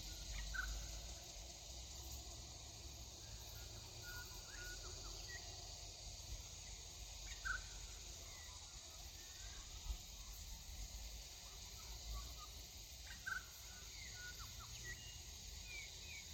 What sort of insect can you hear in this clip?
cicada